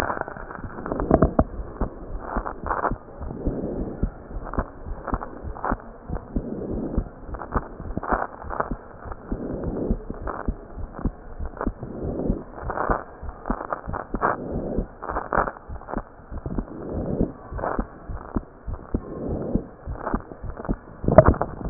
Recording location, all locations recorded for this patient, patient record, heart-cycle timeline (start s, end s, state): pulmonary valve (PV)
pulmonary valve (PV)+tricuspid valve (TV)+mitral valve (MV)
#Age: Child
#Sex: Male
#Height: 125.0 cm
#Weight: 22.5 kg
#Pregnancy status: False
#Murmur: Absent
#Murmur locations: nan
#Most audible location: nan
#Systolic murmur timing: nan
#Systolic murmur shape: nan
#Systolic murmur grading: nan
#Systolic murmur pitch: nan
#Systolic murmur quality: nan
#Diastolic murmur timing: nan
#Diastolic murmur shape: nan
#Diastolic murmur grading: nan
#Diastolic murmur pitch: nan
#Diastolic murmur quality: nan
#Outcome: Normal
#Campaign: 2015 screening campaign
0.00	3.21	unannotated
3.21	3.32	S1
3.32	3.40	systole
3.40	3.54	S2
3.54	3.74	diastole
3.74	3.88	S1
3.88	3.96	systole
3.96	4.12	S2
4.12	4.32	diastole
4.32	4.44	S1
4.44	4.55	systole
4.55	4.65	S2
4.65	4.89	diastole
4.89	4.99	S1
4.99	5.09	systole
5.09	5.20	S2
5.20	5.43	diastole
5.43	5.54	S1
5.54	5.67	systole
5.67	5.80	S2
5.80	6.08	diastole
6.08	6.20	S1
6.20	6.32	systole
6.32	6.44	S2
6.44	6.68	diastole
6.68	6.86	S1
6.86	6.94	systole
6.94	7.08	S2
7.08	7.32	diastole
7.32	7.40	S1
7.40	7.54	systole
7.54	7.64	S2
7.64	7.86	diastole
7.86	7.98	S1
7.98	8.08	systole
8.08	8.20	S2
8.20	8.46	diastole
8.46	21.70	unannotated